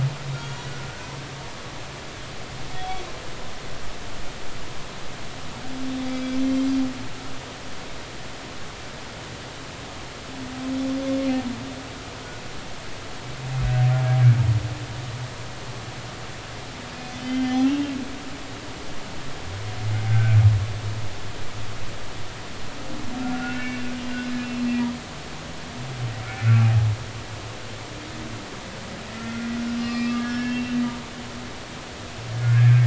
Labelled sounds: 0.3	0.6	humpback whale, 1.3 to 6.8 kHz
2.7	3.0	humpback whale, 3.3 to 3.5 kHz
6.1	6.8	humpback whale, 2.3 to 5.9 kHz
17.2	17.8	humpback whale, 0.80 to 3.4 kHz
20.1	20.4	humpback whale, 1.3 to 2.6 kHz
23.2	23.9	humpback whale, 1.3 to 2.8 kHz
29.1	30.8	humpback whale, 1.1 to 5.1 kHz
32.4	32.8	humpback whale, 1.4 to 2.6 kHz

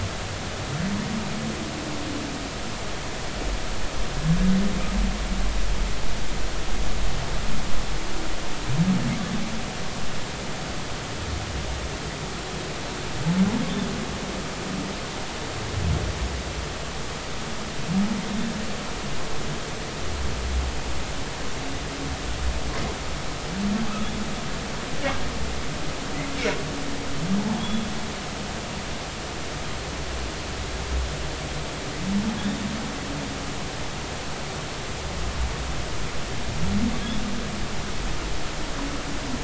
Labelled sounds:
27.6	27.9	humpback whale, 3.2 to 3.5 kHz

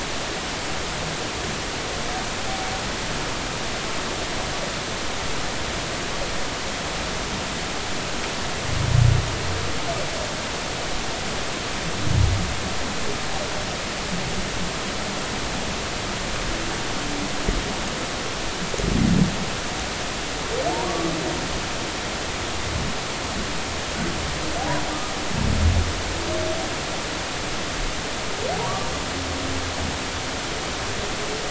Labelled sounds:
20.9	21.1	humpback whale, 1.1 to 1.2 kHz

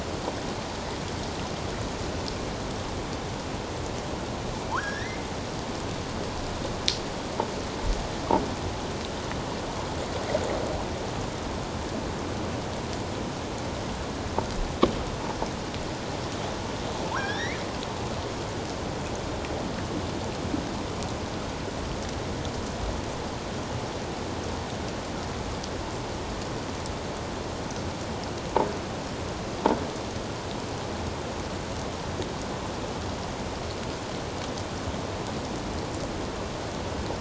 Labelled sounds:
4.7	5.3	killer whale, offshore, 0.81 to 5.8 kHz
17.1	17.6	killer whale, offshore, 1.3 to 5.8 kHz

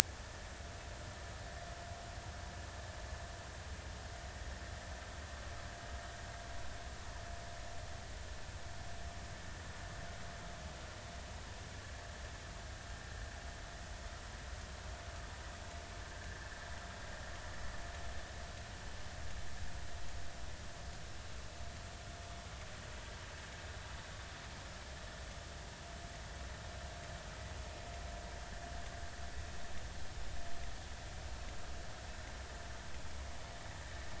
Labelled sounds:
0.2	0.5	vessel noise, 1.7 to 1.9 kHz

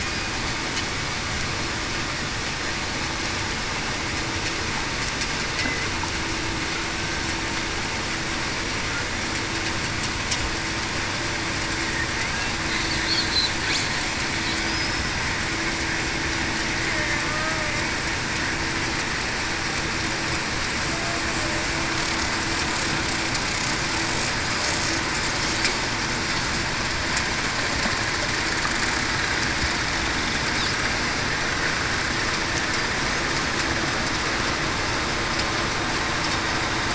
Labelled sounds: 5.5	5.9	killer whale, Bigg's (transient), 1.9 to 2.1 kHz
17.2	17.7	killer whale, Bigg's (transient), 1.2 to 1.3 kHz

